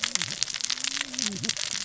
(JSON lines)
{"label": "biophony, cascading saw", "recorder": "SoundTrap 600 or HydroMoth"}